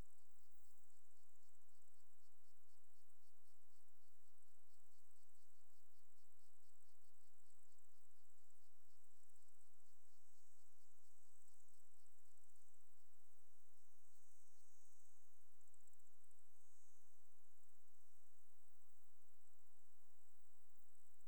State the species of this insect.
Decticus albifrons